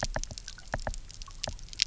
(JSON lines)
{"label": "biophony, knock", "recorder": "SoundTrap 300"}